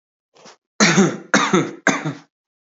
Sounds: Cough